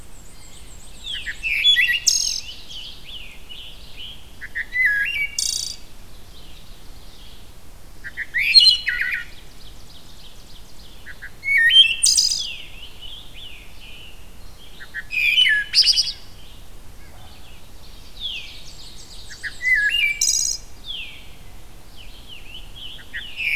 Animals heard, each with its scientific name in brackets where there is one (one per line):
Ovenbird (Seiurus aurocapilla)
Red-eyed Vireo (Vireo olivaceus)
Blue Jay (Cyanocitta cristata)
Scarlet Tanager (Piranga olivacea)
Wood Thrush (Hylocichla mustelina)
Black-and-white Warbler (Mniotilta varia)
Veery (Catharus fuscescens)